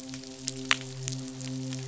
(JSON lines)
{"label": "biophony, midshipman", "recorder": "SoundTrap 500"}